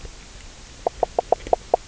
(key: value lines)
label: biophony, knock croak
recorder: SoundTrap 300